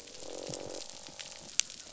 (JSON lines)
{"label": "biophony, croak", "recorder": "SoundTrap 500"}